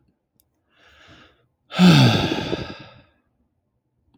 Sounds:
Sigh